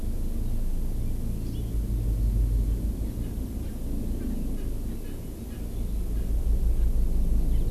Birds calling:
Erckel's Francolin (Pternistis erckelii), Hawaii Amakihi (Chlorodrepanis virens)

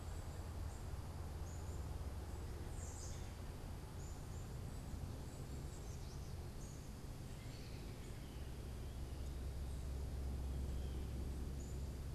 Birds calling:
Black-capped Chickadee (Poecile atricapillus), unidentified bird

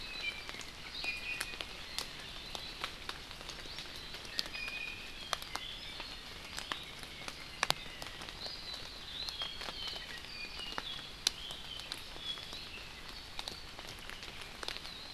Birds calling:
Iiwi (Drepanis coccinea), Apapane (Himatione sanguinea)

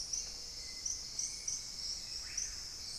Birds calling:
Gray-fronted Dove (Leptotila rufaxilla), Hauxwell's Thrush (Turdus hauxwelli), Screaming Piha (Lipaugus vociferans)

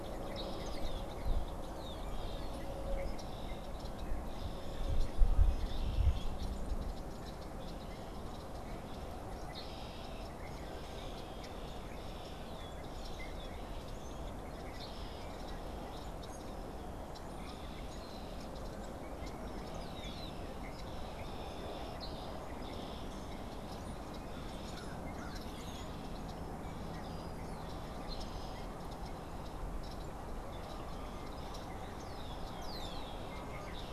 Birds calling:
American Crow (Corvus brachyrhynchos), Red-winged Blackbird (Agelaius phoeniceus)

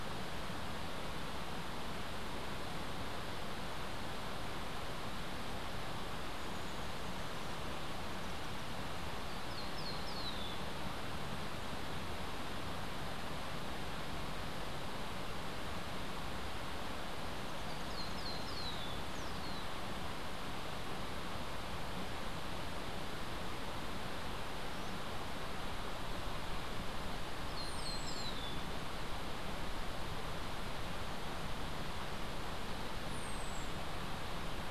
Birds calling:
Cabanis's Ground-Sparrow (Melozone cabanisi), White-eared Ground-Sparrow (Melozone leucotis)

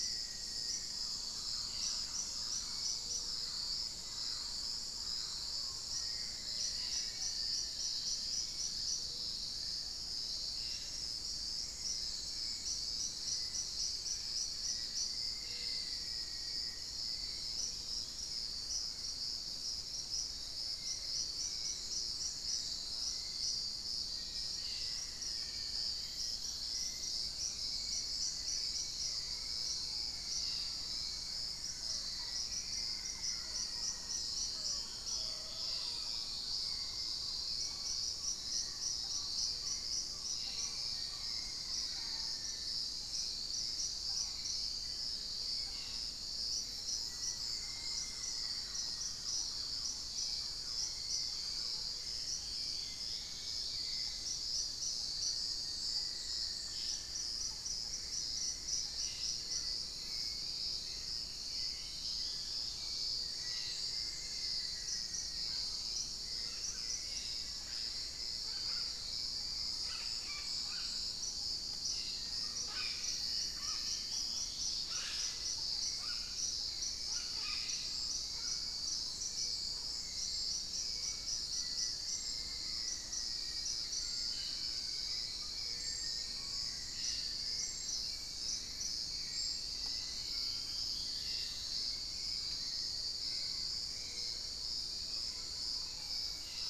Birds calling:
Black-faced Antthrush (Formicarius analis), Musician Wren (Cyphorhinus arada), Gray Antbird (Cercomacra cinerascens), Thrush-like Wren (Campylorhynchus turdinus), unidentified bird, Dusky-throated Antshrike (Thamnomanes ardesiacus), Cobalt-winged Parakeet (Brotogeris cyanoptera), Black-tailed Trogon (Trogon melanurus), Hauxwell's Thrush (Turdus hauxwelli), Long-winged Antwren (Myrmotherula longipennis), Mealy Parrot (Amazona farinosa), Gray Antwren (Myrmotherula menetriesii)

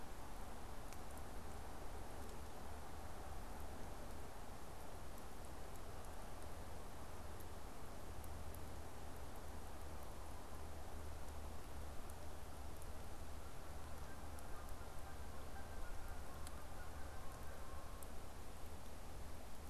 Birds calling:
Canada Goose (Branta canadensis)

